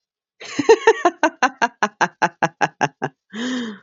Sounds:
Laughter